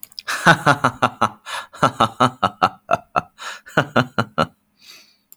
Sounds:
Laughter